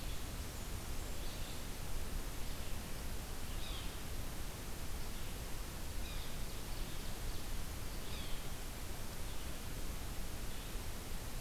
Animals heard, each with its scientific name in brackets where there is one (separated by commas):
Yellow-bellied Sapsucker (Sphyrapicus varius), Red-eyed Vireo (Vireo olivaceus), Ovenbird (Seiurus aurocapilla), Blackburnian Warbler (Setophaga fusca)